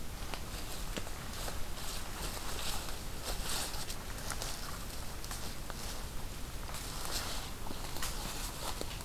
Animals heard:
forest ambience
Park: Hubbard Brook Experimental Forest